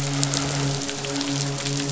{"label": "biophony, midshipman", "recorder": "SoundTrap 500"}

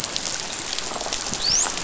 {"label": "biophony", "recorder": "SoundTrap 500"}
{"label": "biophony, dolphin", "recorder": "SoundTrap 500"}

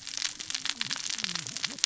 {"label": "biophony, cascading saw", "recorder": "SoundTrap 600 or HydroMoth"}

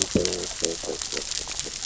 {"label": "biophony, growl", "recorder": "SoundTrap 600 or HydroMoth"}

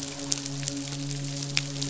{"label": "biophony, midshipman", "recorder": "SoundTrap 500"}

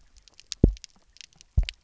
{"label": "biophony, double pulse", "recorder": "SoundTrap 300"}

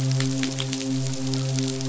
{"label": "biophony, midshipman", "recorder": "SoundTrap 500"}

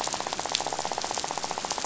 {"label": "biophony, rattle", "recorder": "SoundTrap 500"}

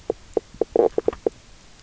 {"label": "biophony, knock croak", "recorder": "SoundTrap 300"}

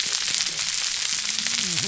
{"label": "biophony, whup", "recorder": "SoundTrap 300"}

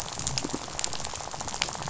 {"label": "biophony, rattle", "recorder": "SoundTrap 500"}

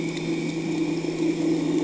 {"label": "anthrophony, boat engine", "recorder": "HydroMoth"}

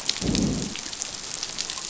{"label": "biophony, growl", "recorder": "SoundTrap 500"}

